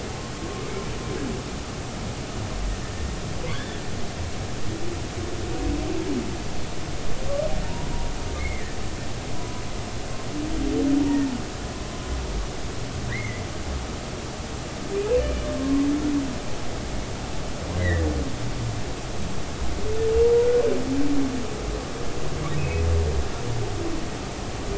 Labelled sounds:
3.5	3.8	humpback whale, 2.9 to 3.6 kHz
8.3	8.8	humpback whale, 1.7 to 2.3 kHz
9.3	9.6	humpback whale, 0.96 to 1.1 kHz
13.1	13.4	humpback whale, 1.6 to 2.3 kHz
15.2	15.9	humpback whale, 0.99 to 2.5 kHz
17.8	18.1	humpback whale, 1.7 to 2.1 kHz
22.6	22.8	humpback whale, 2.3 to 2.6 kHz

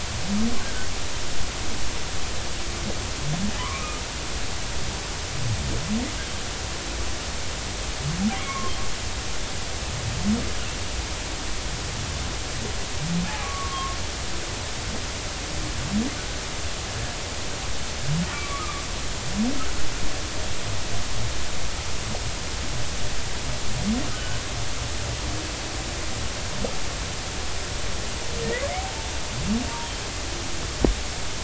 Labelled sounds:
0.6	0.9	humpback whale, 1.4 to 1.7 kHz
3.6	3.8	humpback whale, 0.96 to 1.2 kHz
8.3	8.7	humpback whale, 0.99 to 2.4 kHz
13.3	14.0	humpback whale, 0.80 to 1.3 kHz
18.3	18.8	humpback whale, 1.1 to 2.4 kHz
24.1	24.4	humpback whale, 1.2 to 1.6 kHz
28.7	29.9	humpback whale, 0.80 to 0.99 kHz

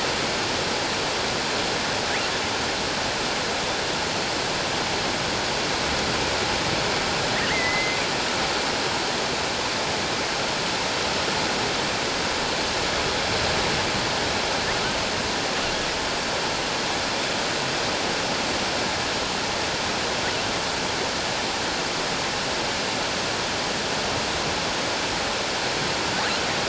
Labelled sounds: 7.5	8.0	killer whale, offshore, 1.8 to 2.2 kHz

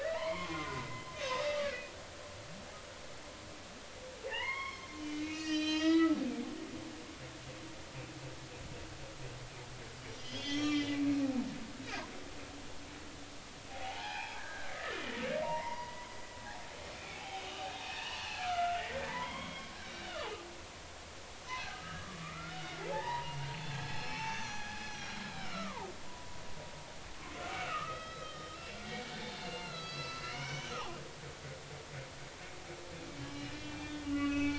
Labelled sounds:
0.0	1.6	humpback whale, 0.83 to 4.3 kHz
4.3	6.2	humpback whale, 0.83 to 6.3 kHz
10.2	11.1	humpback whale, 1.1 to 6.2 kHz
13.7	15.0	humpback whale, 0.80 to 2.6 kHz
15.4	19.8	humpback whale, 0.80 to 3.4 kHz
21.7	23.4	humpback whale, 0.80 to 2.2 kHz
23.7	26.4	humpback whale, 0.80 to 6.2 kHz
27.4	30.7	humpback whale, 1.1 to 5.4 kHz
33.1	34.5	humpback whale, 1.1 to 5.3 kHz

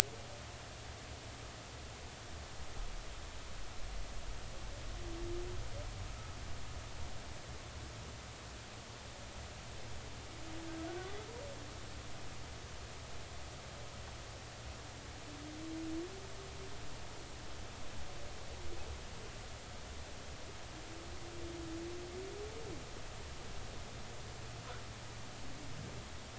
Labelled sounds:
10.9	11.2	humpback whale, 1.1 to 1.6 kHz

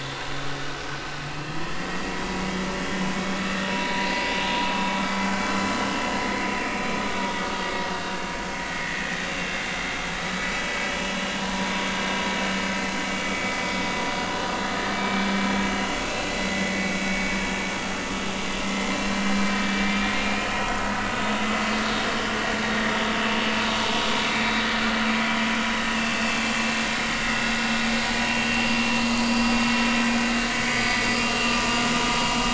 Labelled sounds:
1.3	2.0	vessel noise, 2.5 to 3.2 kHz
3.7	4.1	vessel noise, 0.93 to 0.99 kHz
5.0	5.3	vessel noise, 2.3 to 3.4 kHz
6.3	6.6	vessel noise, 2.1 to 2.2 kHz
8.8	9.2	vessel noise, 1.8 to 2.0 kHz
10.1	10.5	vessel noise, 3.8 to 4.0 kHz
11.4	11.7	vessel noise, 0.93 to 1.1 kHz
14.9	15.2	vessel noise, 2.3 to 2.5 kHz
15.7	16.0	vessel noise, 2.7 to 2.9 kHz
16.5	17.3	vessel noise, 1.9 to 2.3 kHz
18.6	18.9	vessel noise, 2.0 to 2.2 kHz
20.2	20.5	vessel noise, 2.4 to 2.6 kHz
22.6	22.9	vessel noise, 1.8 to 1.9 kHz
24.2	24.5	vessel noise, 2.0 to 2.5 kHz
25.9	26.4	vessel noise, 2.5 to 2.8 kHz
28.0	28.7	vessel noise, 2.7 to 4.4 kHz
29.1	29.6	vessel noise, 4.7 to 4.8 kHz
30.7	31.0	vessel noise, 1.2 to 4.9 kHz

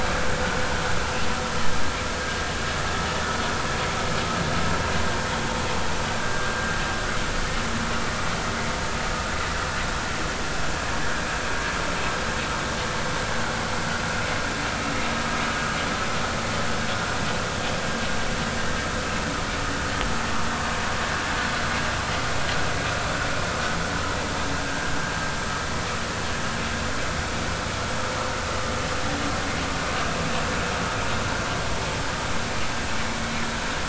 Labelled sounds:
6.3	6.6	vessel noise, 1.5 to 1.6 kHz

